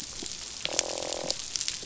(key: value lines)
label: biophony, croak
recorder: SoundTrap 500